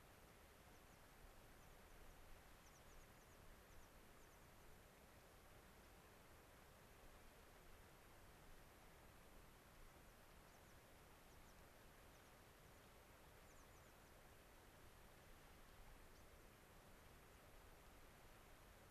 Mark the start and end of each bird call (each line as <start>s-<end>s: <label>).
0.7s-1.1s: American Pipit (Anthus rubescens)
1.6s-2.3s: American Pipit (Anthus rubescens)
2.6s-4.8s: American Pipit (Anthus rubescens)
13.5s-14.2s: American Pipit (Anthus rubescens)